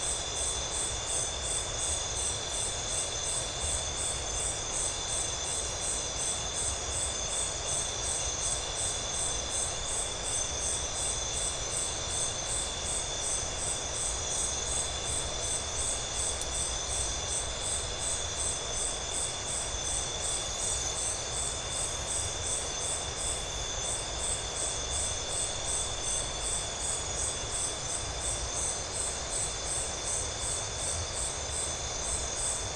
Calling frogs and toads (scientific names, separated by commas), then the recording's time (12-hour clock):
none
7:45pm